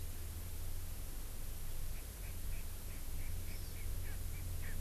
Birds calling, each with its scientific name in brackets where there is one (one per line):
Erckel's Francolin (Pternistis erckelii)
Hawaii Amakihi (Chlorodrepanis virens)